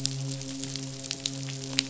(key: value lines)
label: biophony, midshipman
recorder: SoundTrap 500